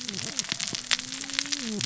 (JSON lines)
{"label": "biophony, cascading saw", "recorder": "SoundTrap 600 or HydroMoth"}